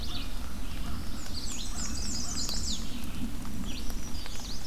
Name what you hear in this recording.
Yellow-rumped Warbler, American Crow, Red-eyed Vireo, Black-throated Blue Warbler, Black-and-white Warbler, Chestnut-sided Warbler, Black-throated Green Warbler